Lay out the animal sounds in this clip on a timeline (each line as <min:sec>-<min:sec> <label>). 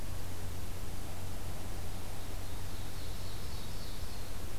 0:01.9-0:04.3 Ovenbird (Seiurus aurocapilla)